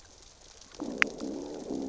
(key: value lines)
label: biophony, growl
recorder: SoundTrap 600 or HydroMoth